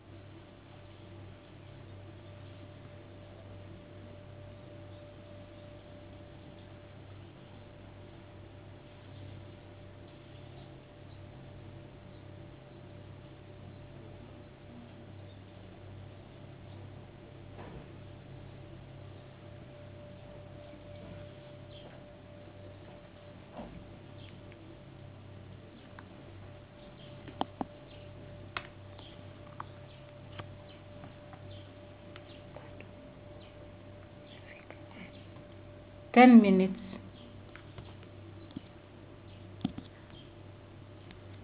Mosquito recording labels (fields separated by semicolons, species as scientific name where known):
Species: no mosquito; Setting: insect culture